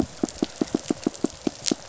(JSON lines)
{"label": "biophony, pulse", "recorder": "SoundTrap 500"}